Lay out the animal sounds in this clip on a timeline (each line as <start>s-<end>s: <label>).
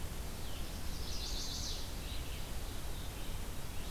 0.0s-3.9s: Red-eyed Vireo (Vireo olivaceus)
0.7s-2.2s: Chestnut-sided Warbler (Setophaga pensylvanica)